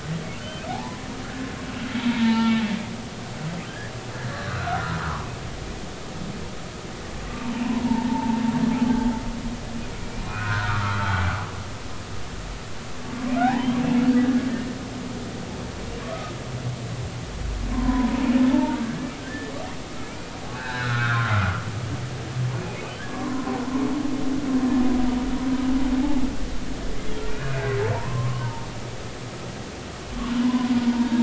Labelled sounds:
0.7	1.5	humpback whale, 0.80 to 1.8 kHz
2.1	2.6	humpback whale, 0.83 to 4.1 kHz
3.7	3.9	humpback whale, 1.5 to 2.0 kHz
4.3	5.0	humpback whale, 1.1 to 1.9 kHz
7.6	8.4	humpback whale, 0.83 to 1.1 kHz
10.3	11.2	humpback whale, 0.93 to 3.3 kHz
13.4	13.7	humpback whale, 0.80 to 2.0 kHz
17.7	19.5	humpback whale, 0.83 to 2.0 kHz
20.0	21.3	humpback whale, 0.80 to 4.0 kHz
22.6	23.6	humpback whale, 0.96 to 2.6 kHz
27.2	28.7	humpback whale, 0.86 to 2.6 kHz
30.4	31.2	humpback whale, 0.83 to 1.1 kHz

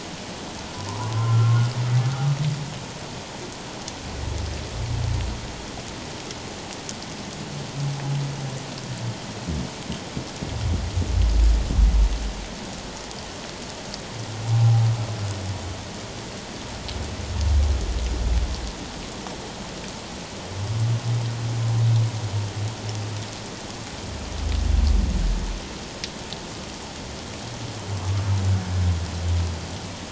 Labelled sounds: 0.7	1.5	humpback whale, 0.88 to 1.4 kHz
14.5	14.8	humpback whale, 0.78 to 0.88 kHz

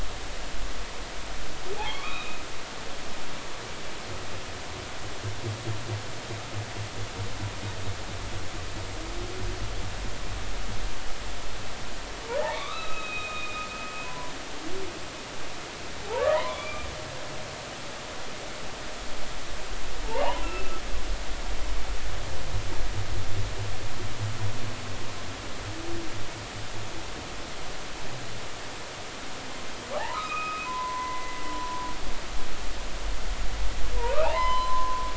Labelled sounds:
1.8	2.4	humpback whale, 1.0 to 3.9 kHz
12.5	14.3	humpback whale, 0.96 to 4.0 kHz
16.2	16.9	humpback whale, 0.90 to 2.4 kHz
20.1	20.7	humpback whale, 0.80 to 3.1 kHz
30.0	31.8	humpback whale, 0.80 to 2.6 kHz
34.1	35.0	humpback whale, 0.80 to 4.1 kHz

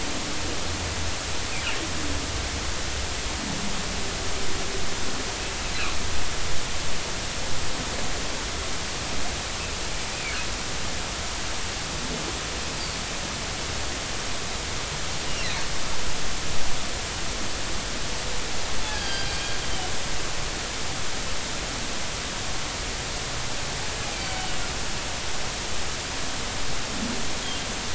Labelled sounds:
18.9	19.3	humpback whale, 1.5 to 5.0 kHz
24.0	24.3	humpback whale, 2.3 to 2.6 kHz

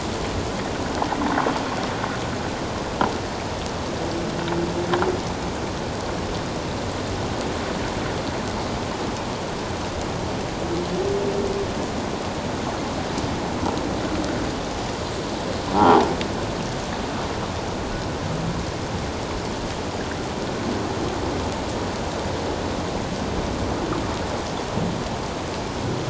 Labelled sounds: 15.7	16.0	croaking sound likely from a nearby submerged object, 0.78 to 1.0 kHz

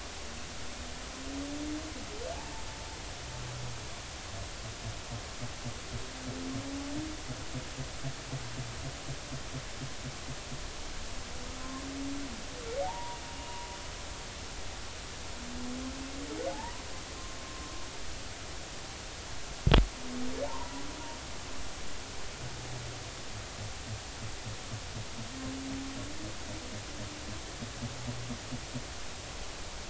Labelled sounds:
2.3	2.6	humpback whale, 0.80 to 0.96 kHz
12.8	13.8	humpback whale, 0.80 to 2.9 kHz
16.5	17.7	humpback whale, 0.80 to 1.1 kHz
20.4	20.8	humpback whale, 0.83 to 1.1 kHz

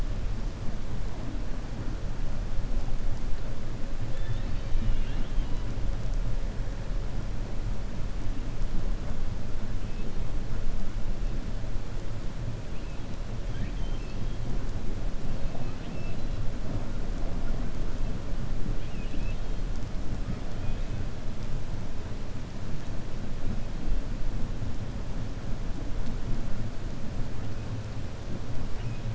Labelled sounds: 4.0	5.6	killer whale, 1.6 to 4.6 kHz
13.4	14.4	killer whale, 1.6 to 5.3 kHz
18.7	19.6	killer whale, 2.4 to 4.1 kHz
20.5	20.9	killer whale, 1.7 to 3.8 kHz

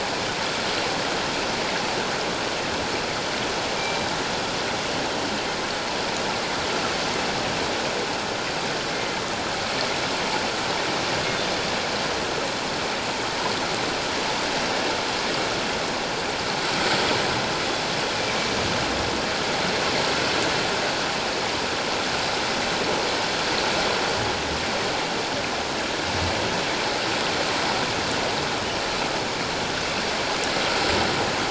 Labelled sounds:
8.9	9.2	killer whale, northern resident, G clan, 2.0 to 2.2 kHz

